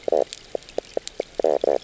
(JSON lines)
{"label": "biophony, knock croak", "recorder": "SoundTrap 300"}